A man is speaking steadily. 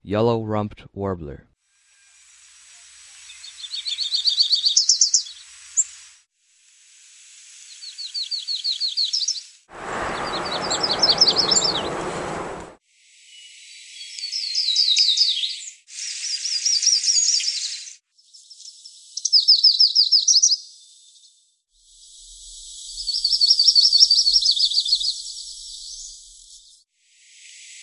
0.1s 1.5s

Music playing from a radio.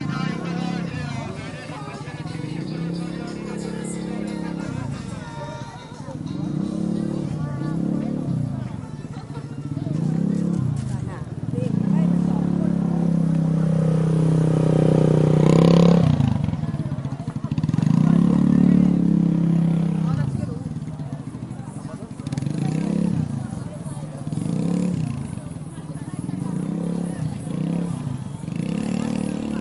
0.0s 11.2s

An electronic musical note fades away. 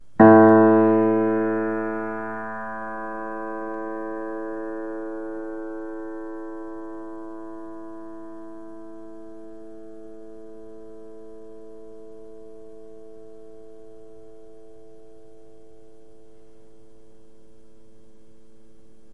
2.3s 16.9s

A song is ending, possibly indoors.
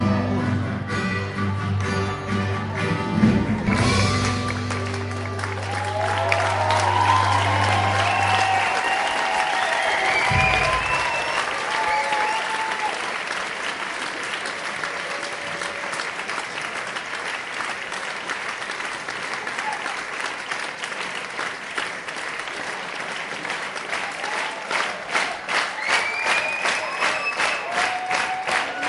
0.6s 9.2s

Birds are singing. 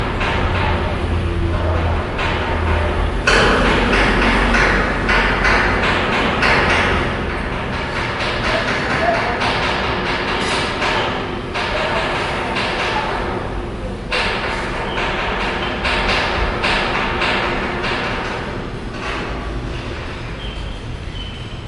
20.0s 21.7s

